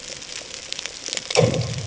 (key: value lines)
label: anthrophony, bomb
recorder: HydroMoth